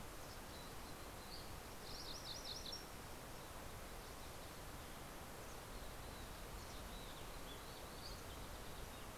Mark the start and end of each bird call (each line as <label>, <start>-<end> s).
Mountain Chickadee (Poecile gambeli), 0.0-1.9 s
MacGillivray's Warbler (Geothlypis tolmiei), 1.5-3.5 s
Mountain Chickadee (Poecile gambeli), 5.4-9.1 s